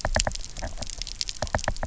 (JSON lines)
{"label": "biophony, knock", "recorder": "SoundTrap 300"}